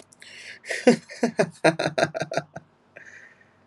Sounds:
Laughter